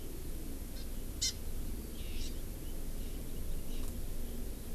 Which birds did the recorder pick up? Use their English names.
Hawaii Amakihi